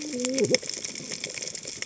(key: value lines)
label: biophony, cascading saw
recorder: HydroMoth